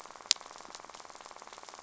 {"label": "biophony, rattle", "recorder": "SoundTrap 500"}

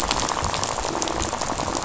{"label": "biophony, rattle", "recorder": "SoundTrap 500"}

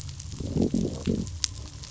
{"label": "biophony, growl", "recorder": "SoundTrap 500"}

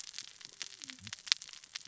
{"label": "biophony, cascading saw", "recorder": "SoundTrap 600 or HydroMoth"}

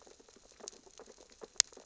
{"label": "biophony, sea urchins (Echinidae)", "recorder": "SoundTrap 600 or HydroMoth"}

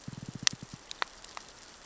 {"label": "biophony, knock", "recorder": "SoundTrap 600 or HydroMoth"}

